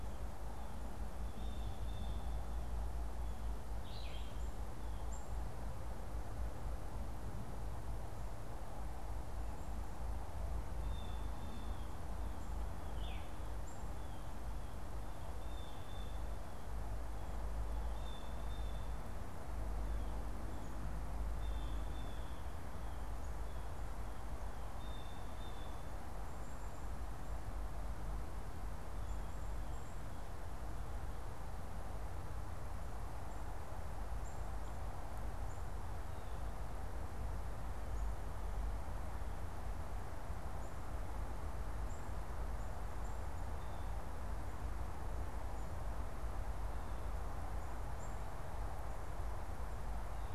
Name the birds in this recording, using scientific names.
Cyanocitta cristata, Vireo olivaceus, Poecile atricapillus